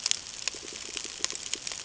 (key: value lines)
label: ambient
recorder: HydroMoth